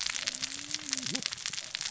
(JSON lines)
{"label": "biophony, cascading saw", "recorder": "SoundTrap 600 or HydroMoth"}